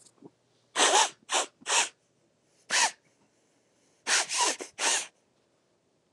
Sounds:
Sniff